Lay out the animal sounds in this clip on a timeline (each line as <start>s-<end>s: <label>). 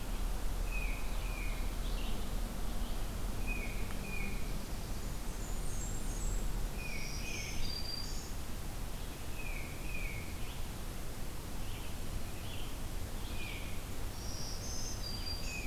0.5s-1.6s: Tufted Titmouse (Baeolophus bicolor)
1.5s-15.3s: Red-eyed Vireo (Vireo olivaceus)
3.2s-4.7s: Tufted Titmouse (Baeolophus bicolor)
4.8s-6.6s: Blackburnian Warbler (Setophaga fusca)
6.5s-7.9s: Tufted Titmouse (Baeolophus bicolor)
6.7s-8.5s: Black-throated Green Warbler (Setophaga virens)
9.1s-10.3s: Tufted Titmouse (Baeolophus bicolor)
13.2s-13.9s: Tufted Titmouse (Baeolophus bicolor)
14.0s-15.7s: Black-throated Green Warbler (Setophaga virens)
15.3s-15.7s: Tufted Titmouse (Baeolophus bicolor)